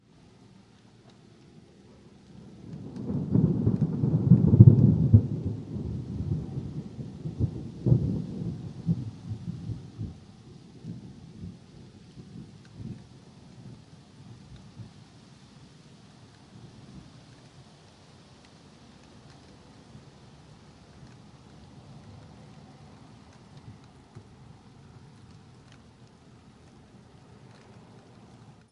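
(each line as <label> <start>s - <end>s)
Soft sound of light rain in the distance. 0.0s - 28.7s
Thunder roars in the distance. 2.5s - 15.0s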